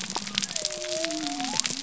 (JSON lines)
{"label": "biophony", "recorder": "SoundTrap 300"}